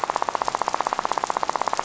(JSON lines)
{"label": "biophony, rattle", "recorder": "SoundTrap 500"}